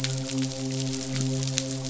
{"label": "biophony, midshipman", "recorder": "SoundTrap 500"}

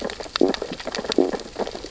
{"label": "biophony, sea urchins (Echinidae)", "recorder": "SoundTrap 600 or HydroMoth"}
{"label": "biophony, stridulation", "recorder": "SoundTrap 600 or HydroMoth"}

